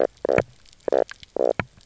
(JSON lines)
{"label": "biophony, knock croak", "recorder": "SoundTrap 300"}